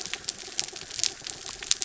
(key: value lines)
label: anthrophony, mechanical
recorder: SoundTrap 300